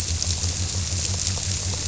{"label": "biophony", "recorder": "SoundTrap 300"}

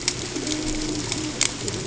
{"label": "ambient", "recorder": "HydroMoth"}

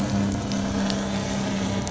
{"label": "anthrophony, boat engine", "recorder": "SoundTrap 500"}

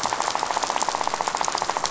{"label": "biophony, rattle", "recorder": "SoundTrap 500"}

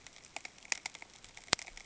{"label": "ambient", "recorder": "HydroMoth"}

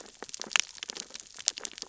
{"label": "biophony, sea urchins (Echinidae)", "recorder": "SoundTrap 600 or HydroMoth"}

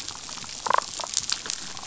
{"label": "biophony, damselfish", "recorder": "SoundTrap 500"}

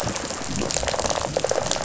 {"label": "biophony, rattle response", "recorder": "SoundTrap 500"}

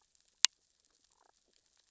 {"label": "biophony, damselfish", "recorder": "SoundTrap 600 or HydroMoth"}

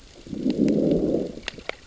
{"label": "biophony, growl", "recorder": "SoundTrap 600 or HydroMoth"}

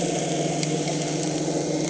{"label": "anthrophony, boat engine", "recorder": "HydroMoth"}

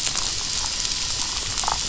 {"label": "biophony, damselfish", "recorder": "SoundTrap 500"}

